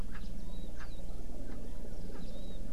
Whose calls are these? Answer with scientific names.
Pternistis erckelii